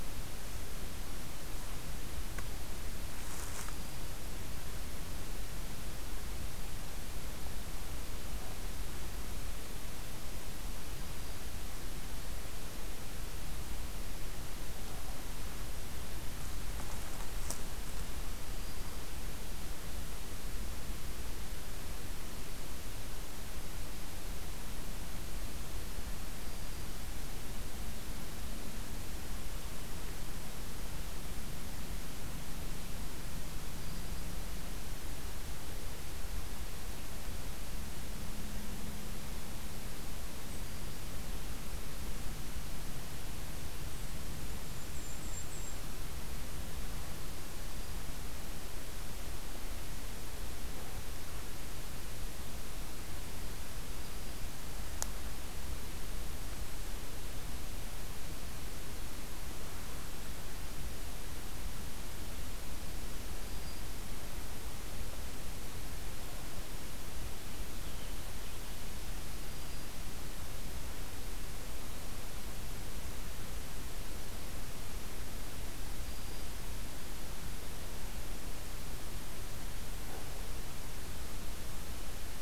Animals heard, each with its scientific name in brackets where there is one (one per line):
Black-throated Green Warbler (Setophaga virens)
Golden-crowned Kinglet (Regulus satrapa)
Red-eyed Vireo (Vireo olivaceus)